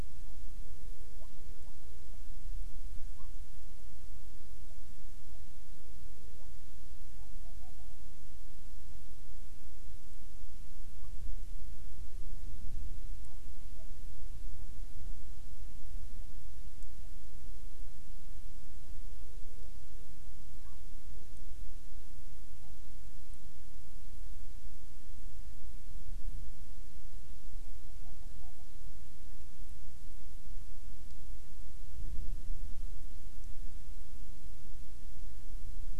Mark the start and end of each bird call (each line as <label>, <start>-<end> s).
Hawaiian Petrel (Pterodroma sandwichensis), 0.0-8.3 s
Hawaiian Petrel (Pterodroma sandwichensis), 13.2-16.4 s
Hawaiian Petrel (Pterodroma sandwichensis), 17.0-23.0 s
Hawaiian Petrel (Pterodroma sandwichensis), 27.4-28.8 s